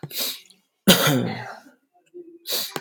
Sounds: Cough